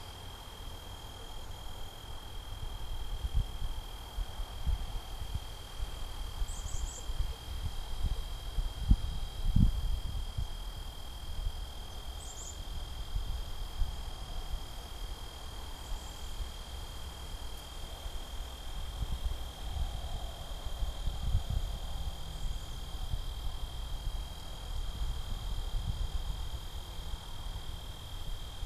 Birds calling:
Black-capped Chickadee (Poecile atricapillus)

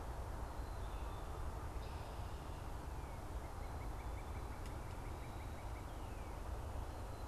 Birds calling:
Northern Cardinal (Cardinalis cardinalis), Black-capped Chickadee (Poecile atricapillus)

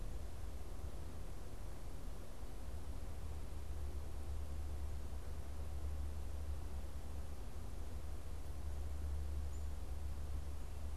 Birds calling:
Black-capped Chickadee (Poecile atricapillus)

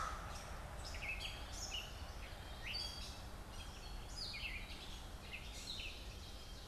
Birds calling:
Gray Catbird (Dumetella carolinensis), American Crow (Corvus brachyrhynchos)

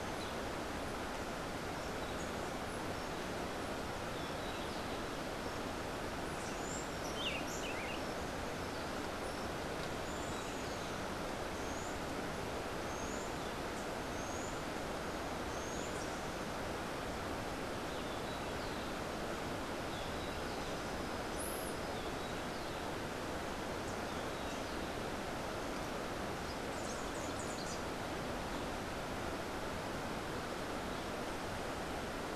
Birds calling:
Rufous-capped Warbler (Basileuterus rufifrons), Rufous-tailed Hummingbird (Amazilia tzacatl), Buff-throated Saltator (Saltator maximus)

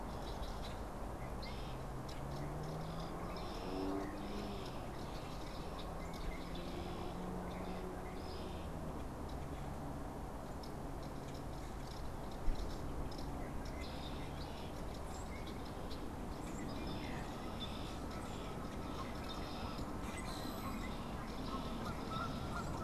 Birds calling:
Canada Goose (Branta canadensis), Red-winged Blackbird (Agelaius phoeniceus), Common Grackle (Quiscalus quiscula)

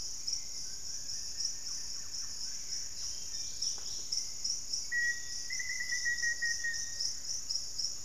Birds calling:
Black-faced Antthrush (Formicarius analis), Dusky-capped Greenlet (Pachysylvia hypoxantha), Yellow-margined Flycatcher (Tolmomyias assimilis), Hauxwell's Thrush (Turdus hauxwelli), Lemon-throated Barbet (Eubucco richardsoni), Thrush-like Wren (Campylorhynchus turdinus), Wing-barred Piprites (Piprites chloris)

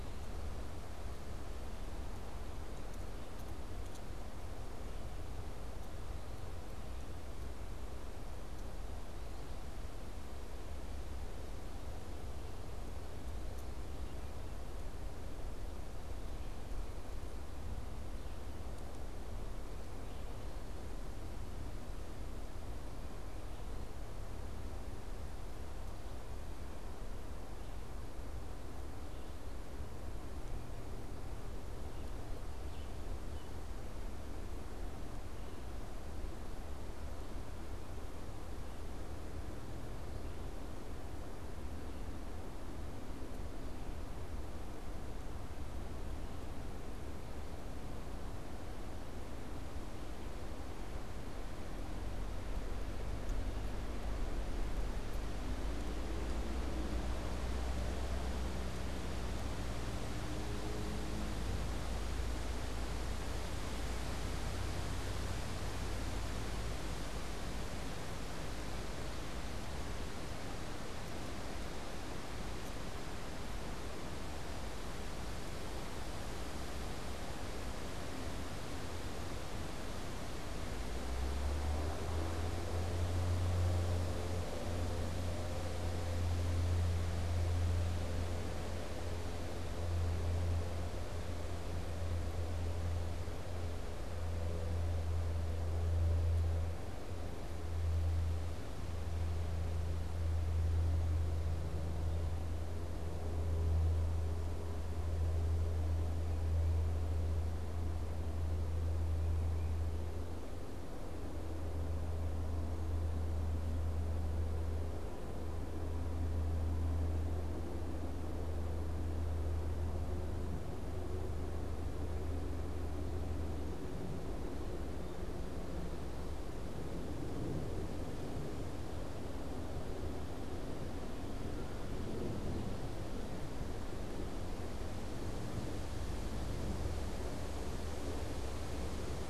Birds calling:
unidentified bird

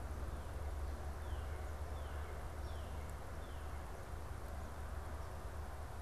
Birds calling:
Northern Cardinal (Cardinalis cardinalis)

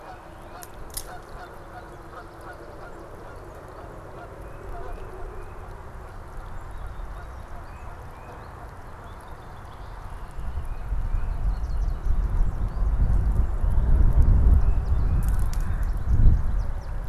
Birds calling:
Tufted Titmouse (Baeolophus bicolor), Canada Goose (Branta canadensis), Red-winged Blackbird (Agelaius phoeniceus)

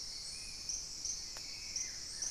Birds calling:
Black-spotted Bare-eye (Phlegopsis nigromaculata), Spot-winged Antshrike (Pygiptila stellaris), Buff-throated Woodcreeper (Xiphorhynchus guttatus)

